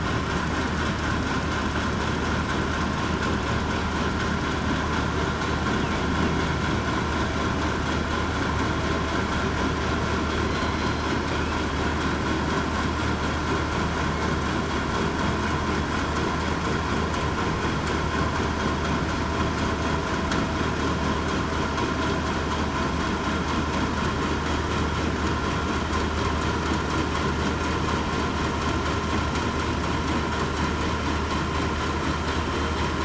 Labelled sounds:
10.7	11.1	killer whale, southern resident, 4.1 to 4.2 kHz

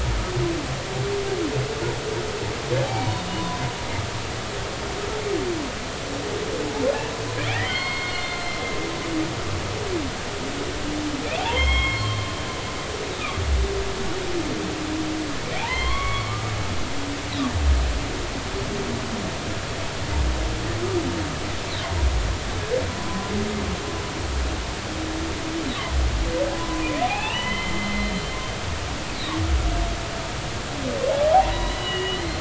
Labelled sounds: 2.8	3.6	humpback whale, 0.80 to 4.7 kHz
7.5	8.7	humpback whale, 1.8 to 4.4 kHz
11.4	12.3	humpback whale, 0.80 to 5.4 kHz
15.7	16.5	humpback whale, 0.96 to 4.4 kHz
22.9	23.3	humpback whale, 0.96 to 1.1 kHz
26.5	28.1	humpback whale, 0.80 to 3.1 kHz
31.1	32.3	humpback whale, 0.80 to 4.3 kHz

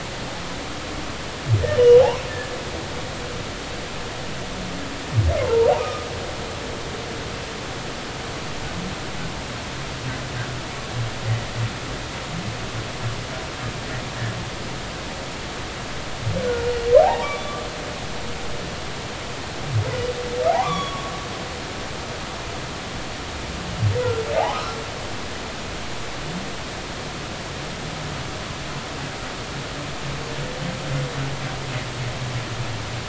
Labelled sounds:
5.5	6.1	humpback whale, 0.86 to 1.3 kHz
16.4	17.6	humpback whale, 0.80 to 3.5 kHz
20.5	21.1	humpback whale, 0.80 to 3.6 kHz
24.3	24.8	humpback whale, 0.80 to 1.5 kHz

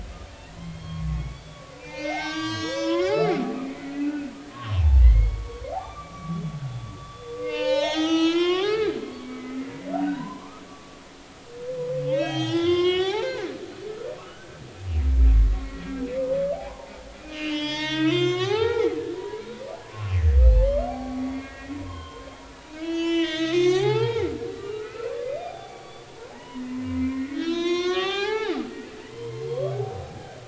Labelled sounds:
0.6	3.4	humpback whale, 0.80 to 7.7 kHz
3.9	9.5	humpback whale, 0.80 to 6.8 kHz
10.1	13.5	humpback whale, 0.80 to 6.9 kHz
13.9	14.6	humpback whale, 1.2 to 5.9 kHz
16.5	19.5	humpback whale, 0.80 to 7.3 kHz
19.8	22.3	humpback whale, 0.80 to 4.5 kHz
22.7	30.0	humpback whale, 0.80 to 7.1 kHz

